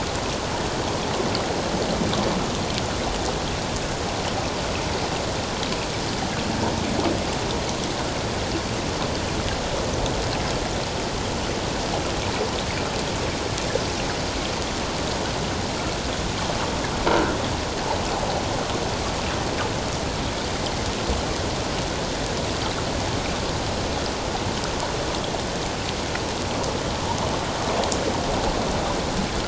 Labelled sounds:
17.1	17.3	croaking sound likely from a nearby submerged object, 1.3 to 1.6 kHz

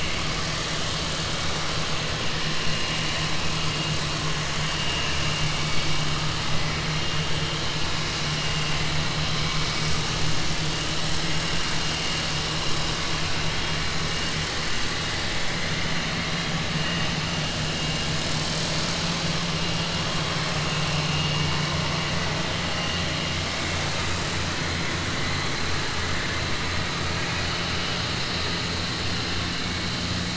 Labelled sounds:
27.1	27.6	vessel noise, 1.6 to 3.8 kHz

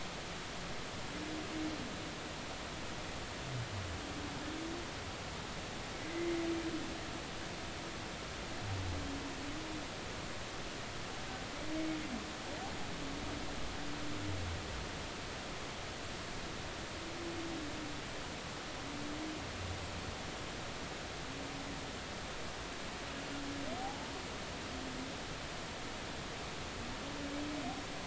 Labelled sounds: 6.1	6.4	humpback whale, 2.0 to 2.1 kHz
23.8	24.1	humpback whale, 0.80 to 0.93 kHz

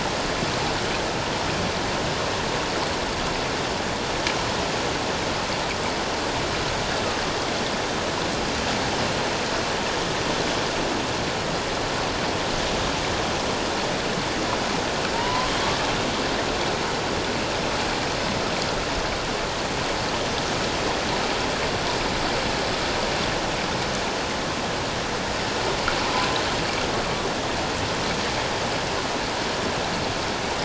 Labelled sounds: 15.1	15.5	killer whale, northern resident, A clan, AA subclan, A01 pod, 0.88 to 1.1 kHz

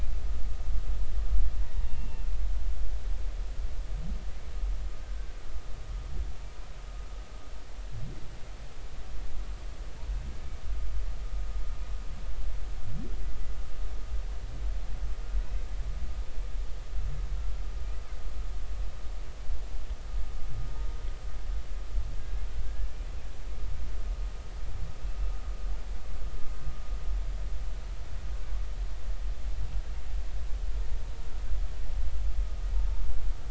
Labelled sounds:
1.8	2.3	humpback whale, 2.7 to 2.8 kHz
5.0	5.3	humpback whale, 1.5 to 1.6 kHz
22.2	22.4	humpback whale, 1.6 to 1.7 kHz

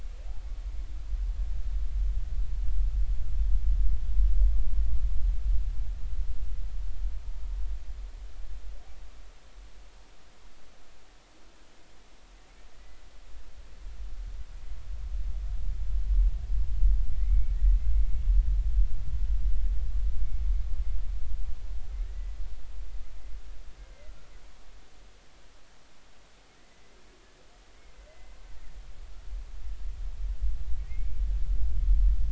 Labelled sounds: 17.2	18.2	humpback whale, 2.0 to 2.3 kHz
22.0	22.4	humpback whale, 1.7 to 2.0 kHz
28.1	28.4	humpback whale, 2.0 to 2.1 kHz
30.9	31.2	humpback whale, 2.0 to 2.4 kHz

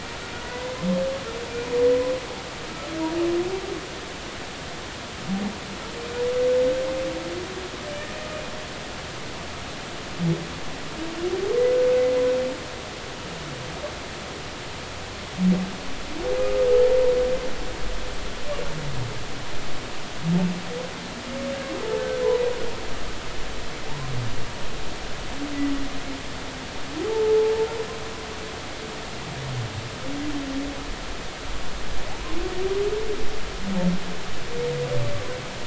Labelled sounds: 0.4	0.7	humpback whale, 1.9 to 2.0 kHz
16.4	16.6	humpback whale, 1.2 to 1.3 kHz
23.9	24.1	humpback whale, 0.80 to 1.1 kHz
27.1	27.4	humpback whale, 0.83 to 0.93 kHz
32.1	32.4	humpback whale, 0.80 to 1.1 kHz

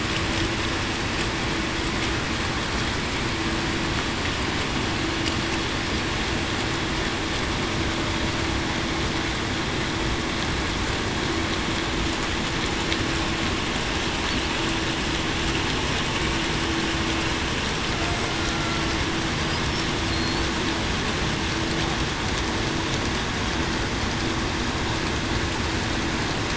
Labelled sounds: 18.4	18.8	killer whale, Bigg's (transient), 1.3 to 1.5 kHz
20.1	20.4	killer whale, Bigg's (transient), 4.2 to 4.6 kHz

